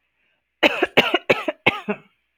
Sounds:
Cough